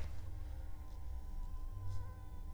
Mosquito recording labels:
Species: Anopheles funestus s.l.; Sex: female; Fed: unfed; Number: one; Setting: cup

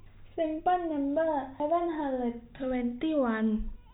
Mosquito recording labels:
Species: no mosquito; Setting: cup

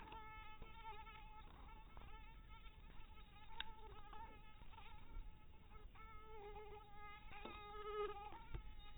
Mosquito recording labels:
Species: mosquito; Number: one; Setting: cup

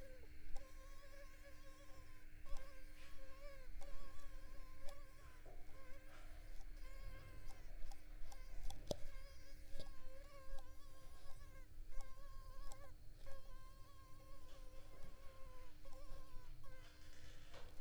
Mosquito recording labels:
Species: Culex pipiens complex; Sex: female; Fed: unfed; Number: one; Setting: cup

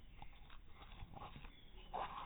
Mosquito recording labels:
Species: no mosquito; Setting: cup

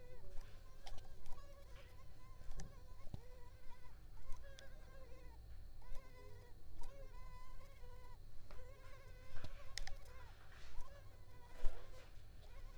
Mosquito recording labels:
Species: Culex pipiens complex; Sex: female; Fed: unfed; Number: one; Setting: cup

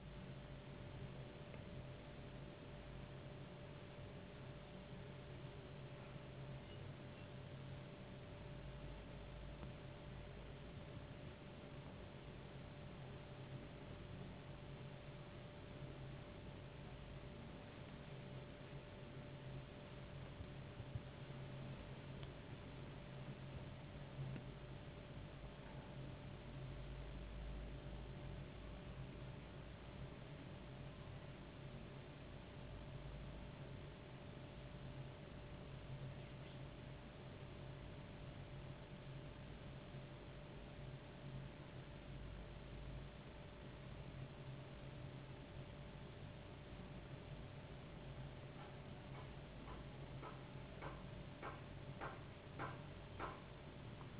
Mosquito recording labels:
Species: no mosquito; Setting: insect culture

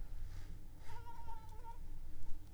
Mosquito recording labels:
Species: Anopheles arabiensis; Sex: female; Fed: unfed; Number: one; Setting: cup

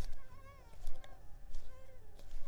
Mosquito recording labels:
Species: Culex pipiens complex; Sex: female; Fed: unfed; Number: one; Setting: cup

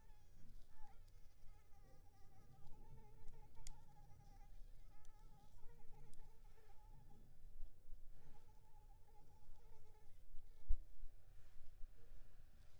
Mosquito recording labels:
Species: Anopheles arabiensis; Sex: female; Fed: unfed; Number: one; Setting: cup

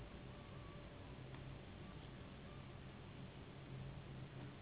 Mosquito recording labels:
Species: Anopheles gambiae s.s.; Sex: female; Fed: unfed; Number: one; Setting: insect culture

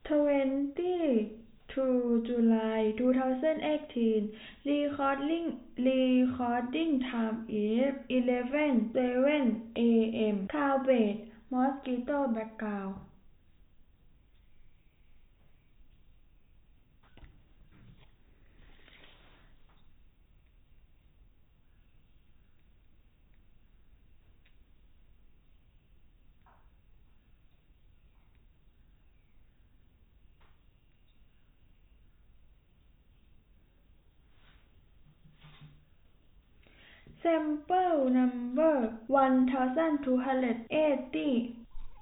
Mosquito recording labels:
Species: no mosquito; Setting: cup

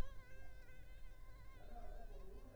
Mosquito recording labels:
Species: Culex pipiens complex; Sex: female; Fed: unfed; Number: one; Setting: cup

